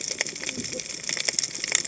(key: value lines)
label: biophony, cascading saw
recorder: HydroMoth